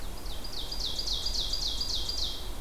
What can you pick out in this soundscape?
Ovenbird